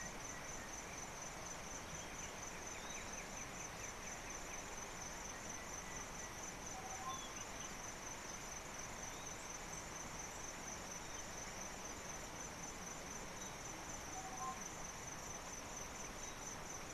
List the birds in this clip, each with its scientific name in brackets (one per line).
Tropical Boubou (Laniarius major)